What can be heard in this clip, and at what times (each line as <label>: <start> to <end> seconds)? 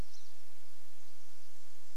Golden-crowned Kinglet song: 0 to 2 seconds
Pine Siskin call: 0 to 2 seconds